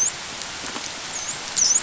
{"label": "biophony, dolphin", "recorder": "SoundTrap 500"}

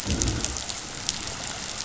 {"label": "biophony, growl", "recorder": "SoundTrap 500"}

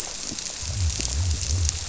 {"label": "biophony", "recorder": "SoundTrap 300"}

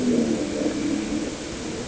{"label": "anthrophony, boat engine", "recorder": "HydroMoth"}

